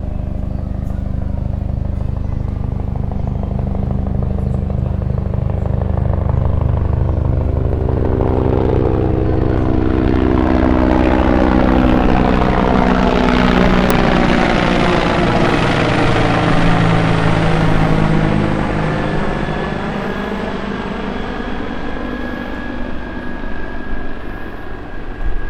Are birds singing?
no